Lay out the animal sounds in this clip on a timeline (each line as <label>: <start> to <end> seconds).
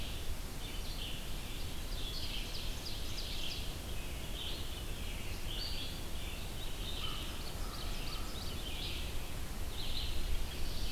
Red-eyed Vireo (Vireo olivaceus): 0.0 to 10.9 seconds
Ovenbird (Seiurus aurocapilla): 1.2 to 3.7 seconds
Ovenbird (Seiurus aurocapilla): 6.7 to 8.6 seconds
American Crow (Corvus brachyrhynchos): 6.8 to 8.4 seconds
Black-throated Blue Warbler (Setophaga caerulescens): 10.0 to 10.9 seconds